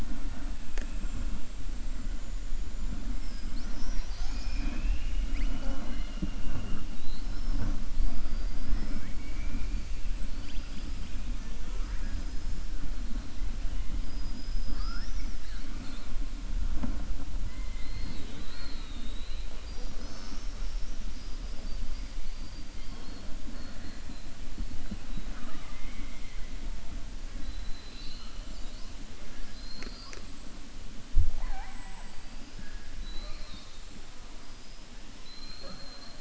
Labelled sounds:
35.1	36.1	killer whale, southern resident, 3.6 to 4.7 kHz

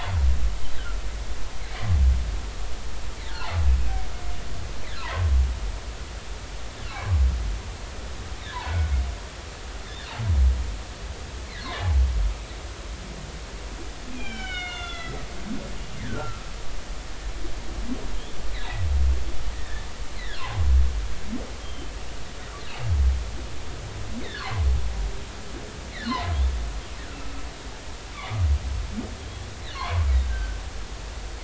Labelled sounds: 0.7	1.0	humpback whale, 1.3 to 1.7 kHz
3.3	3.6	humpback whale, 0.80 to 4.4 kHz
6.9	7.2	humpback whale, 0.99 to 1.2 kHz
8.5	8.8	humpback whale, 0.80 to 1.1 kHz
14.1	15.3	humpback whale, 1.3 to 4.2 kHz
16.0	16.5	humpback whale, 1.2 to 2.0 kHz
18.1	18.4	humpback whale, 3.1 to 3.6 kHz
19.5	19.9	humpback whale, 1.6 to 2.0 kHz
20.2	20.5	humpback whale, 1.3 to 2.1 kHz
21.4	21.9	humpback whale, 0.80 to 3.3 kHz
24.2	24.5	humpback whale, 1.3 to 2.3 kHz
25.9	26.2	humpback whale, 1.3 to 2.2 kHz
29.7	30.6	humpback whale, 0.80 to 1.6 kHz

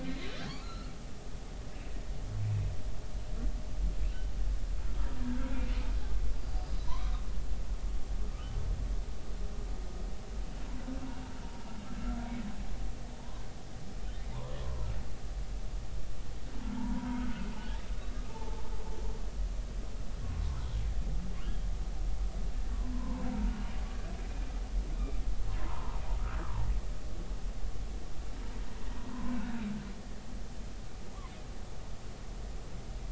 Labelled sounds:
0.0	0.9	humpback whale, 1.2 to 4.7 kHz
6.8	7.1	humpback whale, 0.90 to 1.2 kHz
13.2	13.4	humpback whale, 0.86 to 1.2 kHz
14.3	14.9	humpback whale, 0.86 to 1.2 kHz
16.6	17.4	humpback whale, 0.83 to 1.6 kHz
18.3	18.7	humpback whale, 0.83 to 0.99 kHz
22.9	23.6	humpback whale, 0.83 to 1.5 kHz
25.6	26.0	humpback whale, 0.86 to 1.1 kHz
29.1	29.6	humpback whale, 0.90 to 1.6 kHz

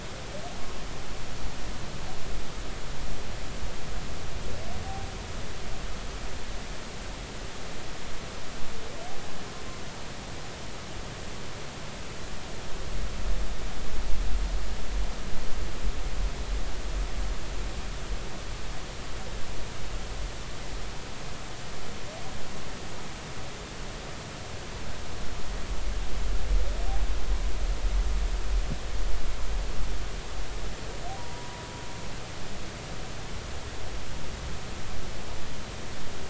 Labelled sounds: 31.2	31.7	humpback whale, 0.90 to 0.99 kHz

